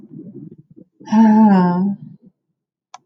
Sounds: Sigh